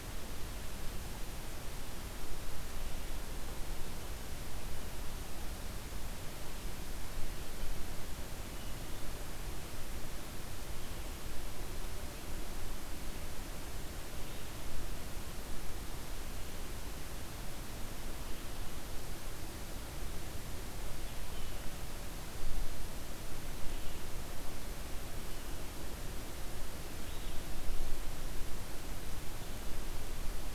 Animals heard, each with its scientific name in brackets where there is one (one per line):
Red-eyed Vireo (Vireo olivaceus)